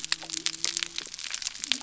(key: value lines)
label: biophony
recorder: SoundTrap 300